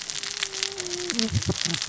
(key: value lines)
label: biophony, cascading saw
recorder: SoundTrap 600 or HydroMoth